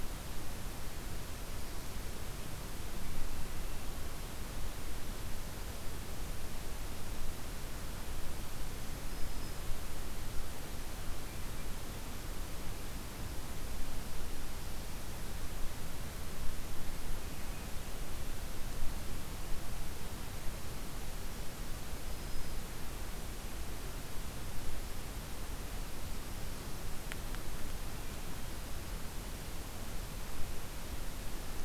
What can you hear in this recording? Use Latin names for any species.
Setophaga virens